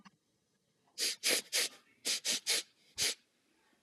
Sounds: Sniff